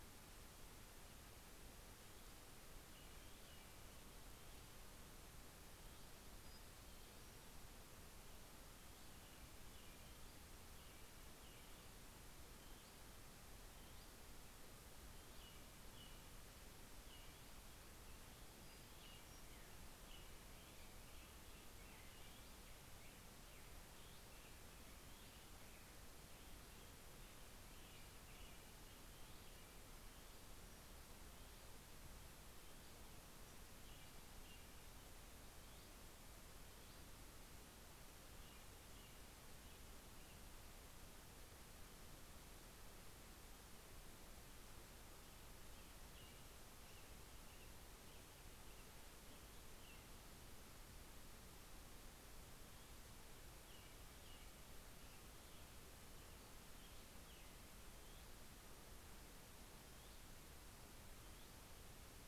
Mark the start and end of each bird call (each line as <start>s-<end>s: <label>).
2.4s-4.3s: American Robin (Turdus migratorius)
5.3s-25.5s: Hutton's Vireo (Vireo huttoni)
5.6s-8.0s: Pacific-slope Flycatcher (Empidonax difficilis)
8.9s-12.2s: American Robin (Turdus migratorius)
15.5s-26.3s: American Robin (Turdus migratorius)
18.6s-19.8s: Pacific-slope Flycatcher (Empidonax difficilis)
26.5s-30.8s: Hutton's Vireo (Vireo huttoni)
27.3s-30.1s: American Robin (Turdus migratorius)
31.1s-33.2s: Hutton's Vireo (Vireo huttoni)
33.6s-35.2s: American Robin (Turdus migratorius)
35.4s-37.2s: Hutton's Vireo (Vireo huttoni)
37.9s-39.7s: American Robin (Turdus migratorius)
45.2s-51.5s: American Robin (Turdus migratorius)
53.2s-57.6s: American Robin (Turdus migratorius)
57.8s-58.9s: Hutton's Vireo (Vireo huttoni)
59.6s-61.9s: Hutton's Vireo (Vireo huttoni)